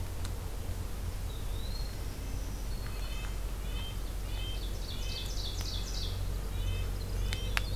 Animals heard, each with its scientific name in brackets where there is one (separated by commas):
Winter Wren (Troglodytes hiemalis), Eastern Wood-Pewee (Contopus virens), Black-throated Green Warbler (Setophaga virens), Ovenbird (Seiurus aurocapilla), Red-breasted Nuthatch (Sitta canadensis)